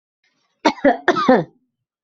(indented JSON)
{
  "expert_labels": [
    {
      "quality": "good",
      "cough_type": "dry",
      "dyspnea": false,
      "wheezing": false,
      "stridor": false,
      "choking": false,
      "congestion": false,
      "nothing": true,
      "diagnosis": "upper respiratory tract infection",
      "severity": "mild"
    }
  ]
}